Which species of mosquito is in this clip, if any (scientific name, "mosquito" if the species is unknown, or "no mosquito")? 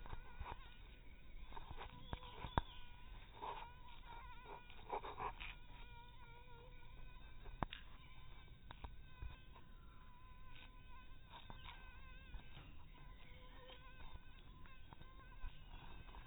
mosquito